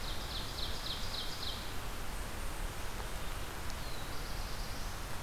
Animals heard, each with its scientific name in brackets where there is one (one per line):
Ovenbird (Seiurus aurocapilla)
Eastern Chipmunk (Tamias striatus)
Black-throated Blue Warbler (Setophaga caerulescens)